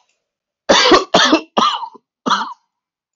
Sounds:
Cough